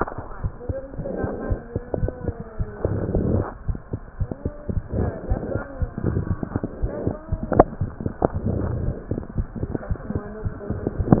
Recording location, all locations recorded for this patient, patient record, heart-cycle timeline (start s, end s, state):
tricuspid valve (TV)
tricuspid valve (TV)
#Age: Child
#Sex: Female
#Height: 82.0 cm
#Weight: 12.1 kg
#Pregnancy status: False
#Murmur: Unknown
#Murmur locations: nan
#Most audible location: nan
#Systolic murmur timing: nan
#Systolic murmur shape: nan
#Systolic murmur grading: nan
#Systolic murmur pitch: nan
#Systolic murmur quality: nan
#Diastolic murmur timing: nan
#Diastolic murmur shape: nan
#Diastolic murmur grading: nan
#Diastolic murmur pitch: nan
#Diastolic murmur quality: nan
#Outcome: Normal
#Campaign: 2015 screening campaign
0.00	0.42	unannotated
0.42	0.50	S1
0.50	0.66	systole
0.66	0.74	S2
0.74	0.96	diastole
0.96	1.03	S1
1.03	1.21	systole
1.21	1.29	S2
1.29	1.48	diastole
1.48	1.58	S1
1.58	1.73	systole
1.73	1.80	S2
1.80	2.01	diastole
2.01	2.09	S1
2.09	2.25	systole
2.25	2.32	S2
2.32	2.58	diastole
2.58	2.65	S1
2.65	2.82	systole
2.82	2.89	S2
2.89	3.12	diastole
3.12	3.20	S1
3.20	3.36	systole
3.36	3.44	S2
3.44	3.66	diastole
3.66	3.75	S1
3.75	3.91	systole
3.91	3.98	S2
3.98	4.17	diastole
4.17	4.27	S1
4.27	4.43	systole
4.43	4.53	S2
4.53	4.74	diastole
4.74	4.81	S1
4.81	5.02	systole
5.02	5.14	S2
5.14	5.28	diastole
5.28	5.39	S1
5.39	5.53	systole
5.53	5.61	S2
5.61	5.78	diastole
5.78	5.87	S1
5.87	6.53	unannotated
6.53	6.59	S2
6.59	6.80	diastole
6.80	6.88	S1
6.88	7.04	systole
7.04	7.12	S2
7.12	7.29	diastole
7.29	7.37	S1
7.37	11.20	unannotated